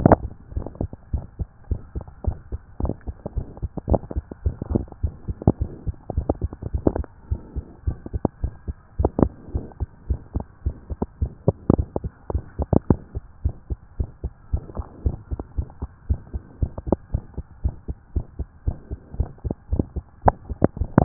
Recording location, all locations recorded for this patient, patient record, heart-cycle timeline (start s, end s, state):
tricuspid valve (TV)
aortic valve (AV)+pulmonary valve (PV)+tricuspid valve (TV)+mitral valve (MV)
#Age: Child
#Sex: Female
#Height: 119.0 cm
#Weight: 26.5 kg
#Pregnancy status: False
#Murmur: Present
#Murmur locations: mitral valve (MV)+pulmonary valve (PV)
#Most audible location: mitral valve (MV)
#Systolic murmur timing: Early-systolic
#Systolic murmur shape: Decrescendo
#Systolic murmur grading: I/VI
#Systolic murmur pitch: Low
#Systolic murmur quality: Blowing
#Diastolic murmur timing: nan
#Diastolic murmur shape: nan
#Diastolic murmur grading: nan
#Diastolic murmur pitch: nan
#Diastolic murmur quality: nan
#Outcome: Abnormal
#Campaign: 2014 screening campaign
0.00	13.20	unannotated
13.20	13.44	diastole
13.44	13.54	S1
13.54	13.70	systole
13.70	13.78	S2
13.78	13.98	diastole
13.98	14.10	S1
14.10	14.22	systole
14.22	14.32	S2
14.32	14.52	diastole
14.52	14.64	S1
14.64	14.76	systole
14.76	14.84	S2
14.84	15.04	diastole
15.04	15.16	S1
15.16	15.30	systole
15.30	15.40	S2
15.40	15.56	diastole
15.56	15.68	S1
15.68	15.80	systole
15.80	15.90	S2
15.90	16.08	diastole
16.08	16.20	S1
16.20	16.34	systole
16.34	16.42	S2
16.42	16.60	diastole
16.60	16.72	S1
16.72	16.88	systole
16.88	16.98	S2
16.98	17.12	diastole
17.12	17.24	S1
17.24	17.36	systole
17.36	17.44	S2
17.44	17.64	diastole
17.64	17.74	S1
17.74	17.88	systole
17.88	17.96	S2
17.96	18.14	diastole
18.14	18.26	S1
18.26	18.38	systole
18.38	18.48	S2
18.48	18.66	diastole
18.66	18.78	S1
18.78	18.90	systole
18.90	18.98	S2
18.98	19.18	diastole
19.18	19.30	S1
19.30	19.44	systole
19.44	19.54	S2
19.54	19.72	diastole
19.72	19.84	S1
19.84	19.96	systole
19.96	20.04	S2
20.04	20.16	diastole
20.16	21.04	unannotated